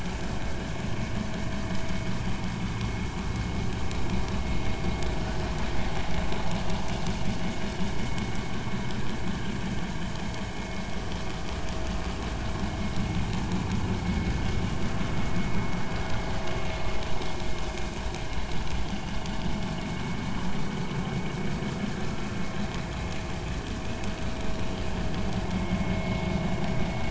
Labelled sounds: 25.8	26.2	vessel noise, 2.1 to 2.2 kHz

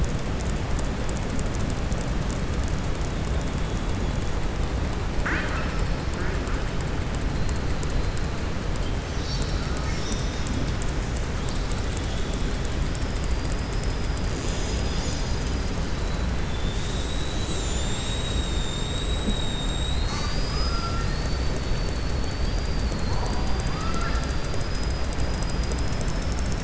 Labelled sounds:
5.1	5.8	killer whale, southern resident, 0.60 to 3.9 kHz

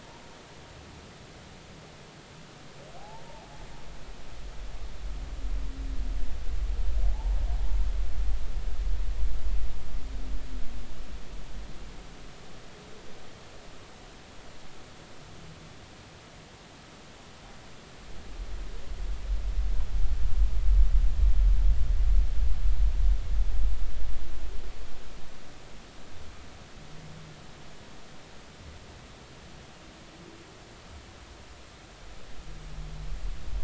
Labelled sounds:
3.0	3.2	humpback whale, 0.80 to 0.96 kHz

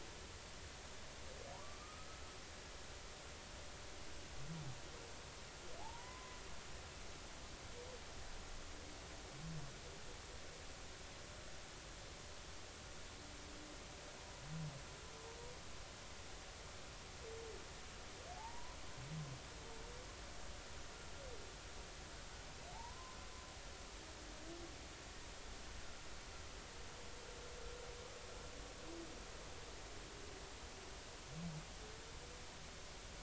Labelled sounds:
1.8	2.1	humpback whale, 1.2 to 1.3 kHz
5.8	6.4	humpback whale, 0.80 to 1.1 kHz
18.4	18.8	humpback whale, 0.80 to 1.1 kHz
22.7	23.2	humpback whale, 0.80 to 1.1 kHz

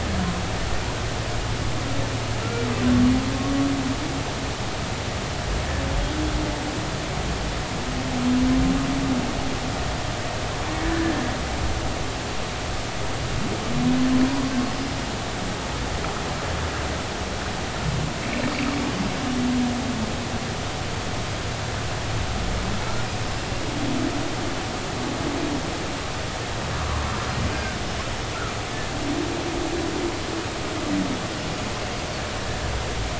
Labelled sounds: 10.8	11.1	humpback whale, 1.6 to 1.8 kHz
14.7	15.0	humpback whale, 4.9 to 5.2 kHz
18.5	18.8	humpback whale, 4.6 to 4.8 kHz
27.5	27.8	humpback whale, 1.4 to 5.0 kHz

